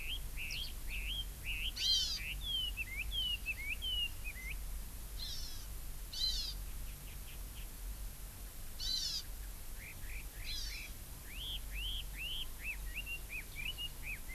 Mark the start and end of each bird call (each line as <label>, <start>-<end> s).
Red-billed Leiothrix (Leiothrix lutea), 0.0-4.6 s
Eurasian Skylark (Alauda arvensis), 0.5-0.8 s
Hawaii Amakihi (Chlorodrepanis virens), 1.8-2.2 s
Hawaii Amakihi (Chlorodrepanis virens), 5.2-5.7 s
Hawaii Amakihi (Chlorodrepanis virens), 6.2-6.6 s
Hawaii Amakihi (Chlorodrepanis virens), 8.8-9.3 s
Red-billed Leiothrix (Leiothrix lutea), 9.8-14.3 s
Hawaii Amakihi (Chlorodrepanis virens), 10.5-10.9 s